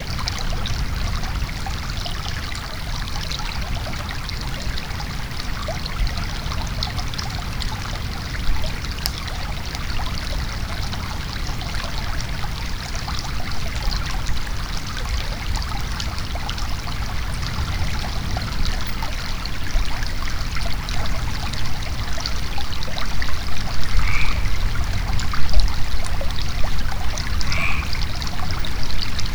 What is falling?
water